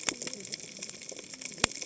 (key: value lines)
label: biophony, cascading saw
recorder: HydroMoth